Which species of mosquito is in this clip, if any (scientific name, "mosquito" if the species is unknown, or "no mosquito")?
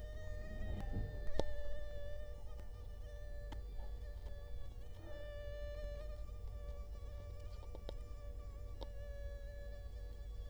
Culex quinquefasciatus